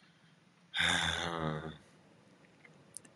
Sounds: Sigh